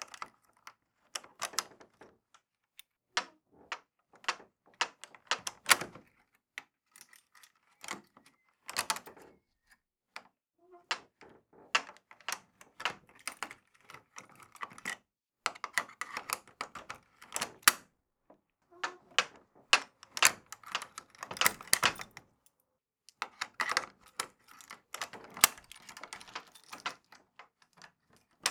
Is something hard being played with?
yes